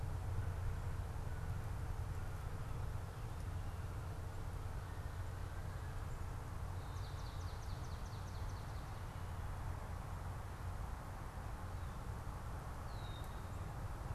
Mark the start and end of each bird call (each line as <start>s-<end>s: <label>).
6.8s-8.9s: Swamp Sparrow (Melospiza georgiana)
12.9s-13.4s: Red-winged Blackbird (Agelaius phoeniceus)